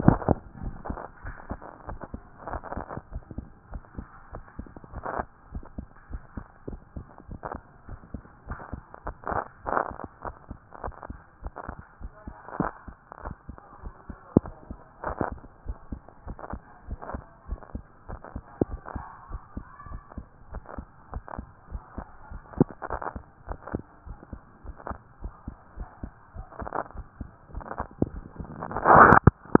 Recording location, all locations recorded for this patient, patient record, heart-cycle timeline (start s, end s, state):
tricuspid valve (TV)
aortic valve (AV)+pulmonary valve (PV)+tricuspid valve (TV)+mitral valve (MV)
#Age: Child
#Sex: Male
#Height: 139.0 cm
#Weight: 36.6 kg
#Pregnancy status: False
#Murmur: Absent
#Murmur locations: nan
#Most audible location: nan
#Systolic murmur timing: nan
#Systolic murmur shape: nan
#Systolic murmur grading: nan
#Systolic murmur pitch: nan
#Systolic murmur quality: nan
#Diastolic murmur timing: nan
#Diastolic murmur shape: nan
#Diastolic murmur grading: nan
#Diastolic murmur pitch: nan
#Diastolic murmur quality: nan
#Outcome: Normal
#Campaign: 2014 screening campaign
0.00	0.49	unannotated
0.49	0.62	diastole
0.62	0.74	S1
0.74	0.88	systole
0.88	1.00	S2
1.00	1.24	diastole
1.24	1.36	S1
1.36	1.50	systole
1.50	1.60	S2
1.60	1.88	diastole
1.88	2.00	S1
2.00	2.12	systole
2.12	2.22	S2
2.22	2.50	diastole
2.50	2.62	S1
2.62	2.76	systole
2.76	2.86	S2
2.86	3.12	diastole
3.12	3.24	S1
3.24	3.36	systole
3.36	3.46	S2
3.46	3.70	diastole
3.70	3.82	S1
3.82	3.96	systole
3.96	4.06	S2
4.06	4.32	diastole
4.32	4.44	S1
4.44	4.58	systole
4.58	4.68	S2
4.68	4.92	diastole
4.92	5.04	S1
5.04	5.18	systole
5.18	5.26	S2
5.26	5.52	diastole
5.52	5.64	S1
5.64	5.76	systole
5.76	5.86	S2
5.86	6.10	diastole
6.10	6.22	S1
6.22	6.36	systole
6.36	6.44	S2
6.44	6.68	diastole
6.68	6.80	S1
6.80	6.96	systole
6.96	7.06	S2
7.06	7.30	diastole
7.30	7.40	S1
7.40	7.54	systole
7.54	7.62	S2
7.62	7.88	diastole
7.88	8.00	S1
8.00	8.12	systole
8.12	8.22	S2
8.22	8.48	diastole
8.48	8.58	S1
8.58	8.72	systole
8.72	8.82	S2
8.82	9.06	diastole
9.06	29.60	unannotated